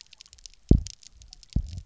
{"label": "biophony, double pulse", "recorder": "SoundTrap 300"}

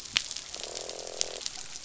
{"label": "biophony, croak", "recorder": "SoundTrap 500"}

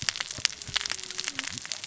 {"label": "biophony, cascading saw", "recorder": "SoundTrap 600 or HydroMoth"}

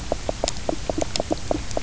{"label": "biophony, knock", "recorder": "SoundTrap 300"}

